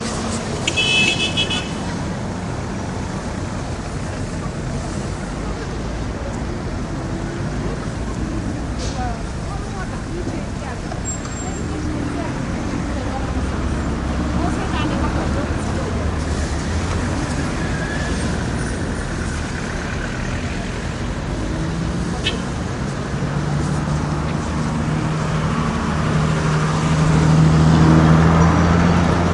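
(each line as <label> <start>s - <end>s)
A car horn honks loudly outdoors. 0.5s - 2.0s
City noise with occasional people speaking. 2.0s - 29.3s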